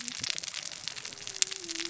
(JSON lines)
{"label": "biophony, cascading saw", "recorder": "SoundTrap 600 or HydroMoth"}